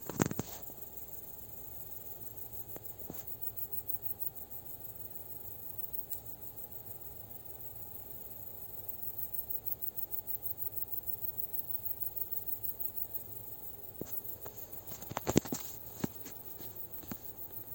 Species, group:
Sepiana sepium
Orthoptera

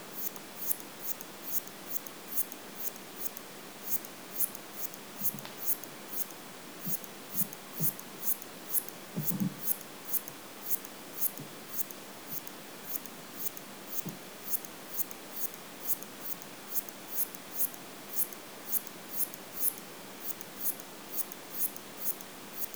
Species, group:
Hexacentrus unicolor
Orthoptera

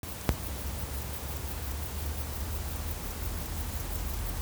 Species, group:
Chorthippus apricarius
Orthoptera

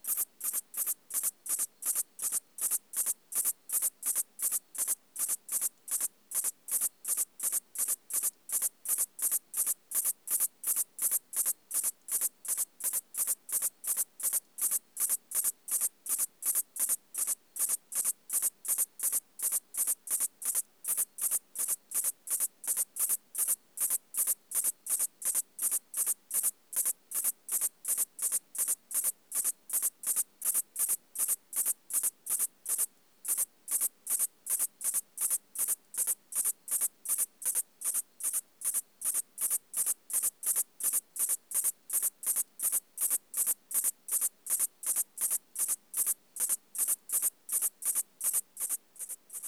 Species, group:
Liara magna
Orthoptera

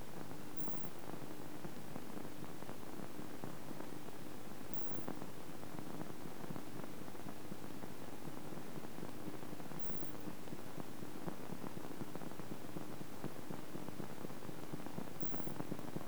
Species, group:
Isophya modestior
Orthoptera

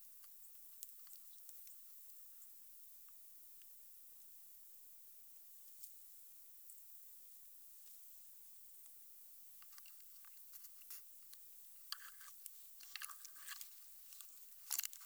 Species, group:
Metaplastes ornatus
Orthoptera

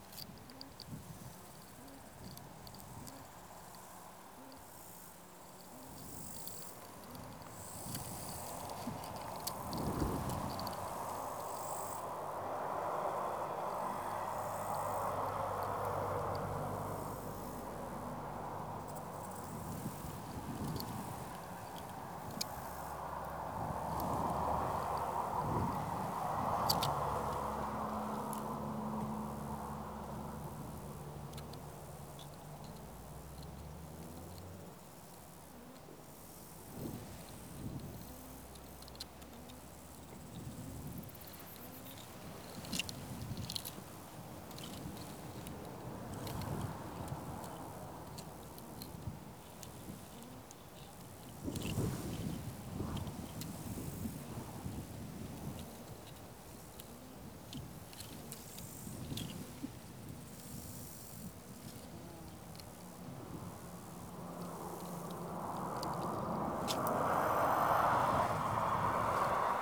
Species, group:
Chorthippus yersini
Orthoptera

